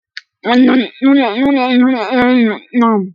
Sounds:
Throat clearing